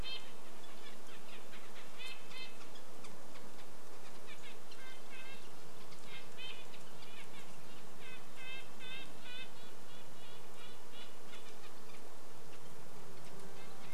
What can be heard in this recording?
Red-breasted Nuthatch call, Red-breasted Nuthatch song, insect buzz